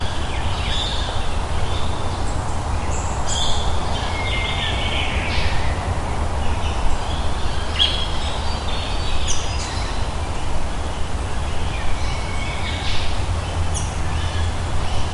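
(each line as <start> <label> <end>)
0.0 Multiple birds chirping outdoors. 15.1
0.0 Unidentifiable background noise. 15.1
7.7 A bird chirps once in the foreground. 8.1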